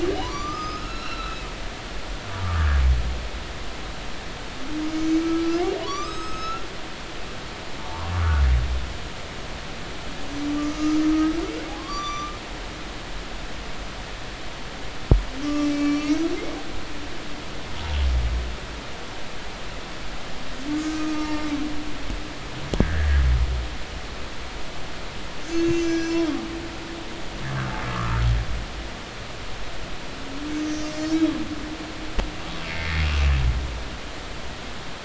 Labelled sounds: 0.2	1.5	humpback whale, 0.90 to 6.1 kHz
2.4	2.8	humpback whale, 1.1 to 1.8 kHz
4.9	6.7	humpback whale, 0.93 to 7.9 kHz
7.8	8.4	humpback whale, 0.83 to 1.5 kHz
10.5	11.4	humpback whale, 1.1 to 1.3 kHz
11.9	12.4	humpback whale, 3.4 to 7.2 kHz
12.8	13.4	humpback whale, 0.99 to 1.2 kHz
15.4	16.2	humpback whale, 1.1 to 5.6 kHz
21.1	22.3	humpback whale, 0.86 to 1.3 kHz
23.8	24.1	humpback whale, 1.5 to 2.0 kHz
25.5	26.3	humpback whale, 1.6 to 7.2 kHz
27.5	28.3	humpback whale, 1.1 to 1.7 kHz
30.5	31.2	humpback whale, 4.3 to 6.5 kHz
32.7	33.1	humpback whale, 1.8 to 2.2 kHz

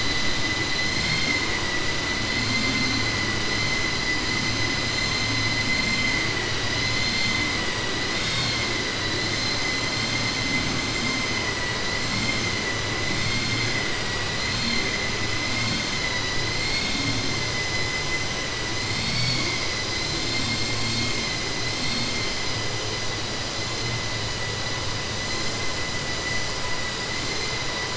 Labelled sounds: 0.9	1.4	vessel noise, 2.0 to 5.5 kHz

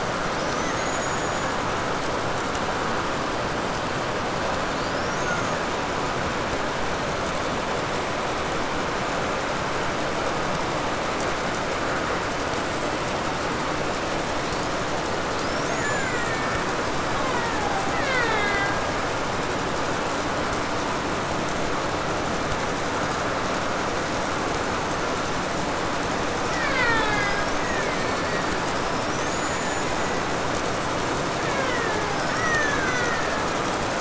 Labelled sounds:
0.2	2.1	killer whale, Bigg's (transient), call T04, 1.2 to 7.1 kHz
4.6	6.1	killer whale, 0.90 to 7.6 kHz
14.2	15.0	killer whale, 3.2 to 7.3 kHz
15.2	19.1	killer whale, Bigg's (transient), 0.19 to 7.7 kHz
26.3	30.5	killer whale, Bigg's (transient), 0.15 to 7.3 kHz
31.1	33.9	killer whale, Bigg's (transient), 0.17 to 6.9 kHz

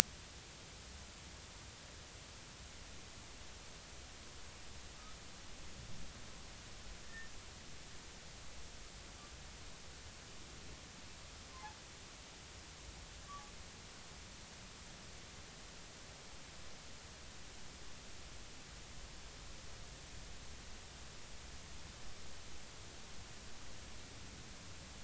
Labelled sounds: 7.0	7.3	humpback whale, 1.7 to 1.9 kHz

